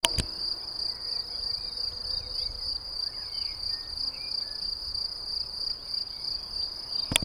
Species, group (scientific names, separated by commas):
Gryllus campestris, Orthoptera